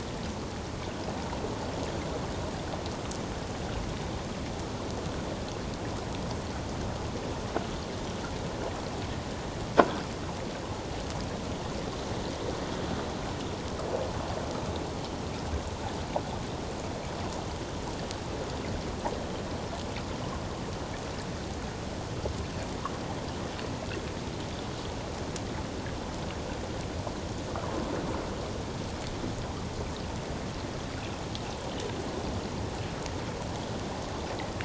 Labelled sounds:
9.8	10.0	croaking sound likely from a nearby submerged object, 1.4 to 1.6 kHz

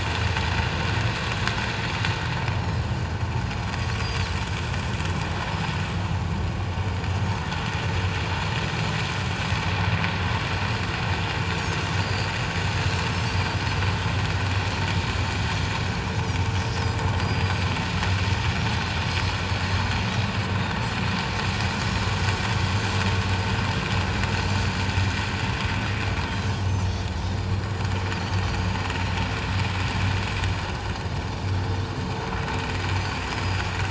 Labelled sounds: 4.0	4.3	Pacific white-sided dolphin, 4.3 to 5.0 kHz
12.0	12.3	Pacific white-sided dolphin, 4.5 to 4.8 kHz
17.2	17.5	Pacific white-sided dolphin, 4.7 to 4.9 kHz
24.5	24.7	Pacific white-sided dolphin, 4.4 to 4.7 kHz
26.4	26.9	Pacific white-sided dolphin, 5.8 to 6.5 kHz
28.5	28.9	Pacific white-sided dolphin, 4.6 to 4.9 kHz
33.0	33.6	Pacific white-sided dolphin, 4.5 to 5.2 kHz

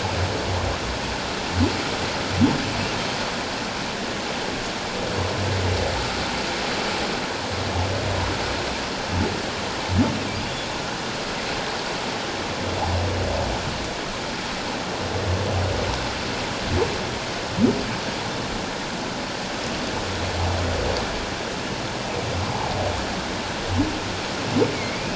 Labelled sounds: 22.4	22.7	humpback whale, 0.78 to 1.1 kHz

